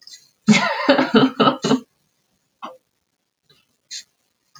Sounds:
Laughter